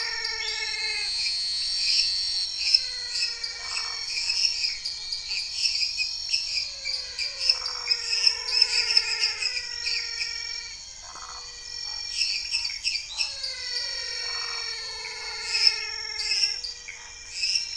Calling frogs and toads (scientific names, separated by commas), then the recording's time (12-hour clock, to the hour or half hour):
Dendropsophus minutus, Dendropsophus nanus, Elachistocleis matogrosso, Physalaemus albonotatus, Phyllomedusa sauvagii, Pithecopus azureus, Scinax fuscovarius
8pm